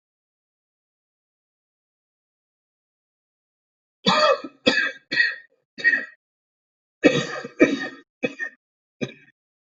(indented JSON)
{
  "expert_labels": [
    {
      "quality": "good",
      "cough_type": "dry",
      "dyspnea": true,
      "wheezing": false,
      "stridor": false,
      "choking": false,
      "congestion": false,
      "nothing": false,
      "diagnosis": "lower respiratory tract infection",
      "severity": "mild"
    }
  ],
  "age": 31,
  "gender": "male",
  "respiratory_condition": true,
  "fever_muscle_pain": true,
  "status": "symptomatic"
}